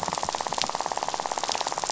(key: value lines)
label: biophony, rattle
recorder: SoundTrap 500